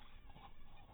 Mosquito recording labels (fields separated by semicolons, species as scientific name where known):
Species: mosquito; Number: one; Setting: cup